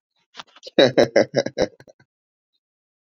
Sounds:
Laughter